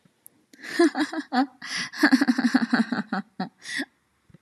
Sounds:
Laughter